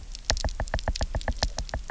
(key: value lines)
label: biophony, knock
recorder: SoundTrap 300